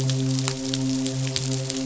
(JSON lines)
{"label": "biophony, midshipman", "recorder": "SoundTrap 500"}